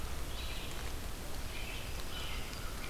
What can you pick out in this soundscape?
Red-eyed Vireo, American Robin, American Crow